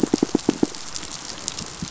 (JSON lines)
{"label": "biophony, pulse", "recorder": "SoundTrap 500"}